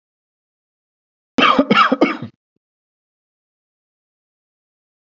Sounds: Cough